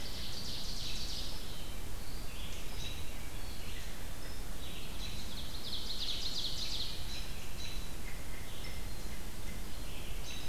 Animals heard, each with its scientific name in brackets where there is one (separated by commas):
Black-capped Chickadee (Poecile atricapillus), Ovenbird (Seiurus aurocapilla), American Robin (Turdus migratorius), Red-eyed Vireo (Vireo olivaceus)